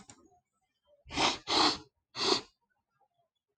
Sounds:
Sniff